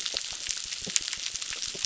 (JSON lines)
{"label": "biophony, crackle", "recorder": "SoundTrap 600"}